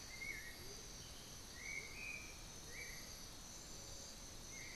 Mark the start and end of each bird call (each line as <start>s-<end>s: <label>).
0.0s-4.8s: Amazonian Motmot (Momotus momota)
0.0s-4.8s: Black-billed Thrush (Turdus ignobilis)
1.4s-3.6s: Undulated Tinamou (Crypturellus undulatus)